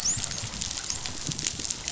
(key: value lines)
label: biophony, dolphin
recorder: SoundTrap 500